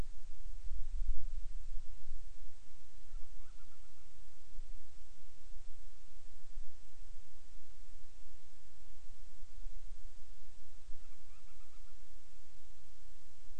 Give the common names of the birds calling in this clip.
Band-rumped Storm-Petrel